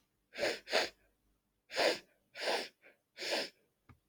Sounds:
Sniff